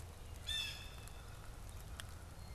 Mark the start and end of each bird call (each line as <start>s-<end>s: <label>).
0.3s-1.3s: Blue Jay (Cyanocitta cristata)